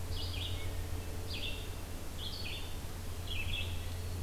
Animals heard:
Red-eyed Vireo (Vireo olivaceus)

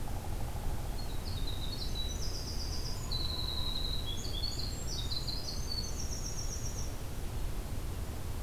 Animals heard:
Winter Wren (Troglodytes hiemalis), Hairy Woodpecker (Dryobates villosus), Pileated Woodpecker (Dryocopus pileatus)

